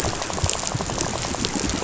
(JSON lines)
{"label": "biophony, rattle", "recorder": "SoundTrap 500"}